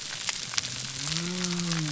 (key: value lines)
label: biophony
recorder: SoundTrap 300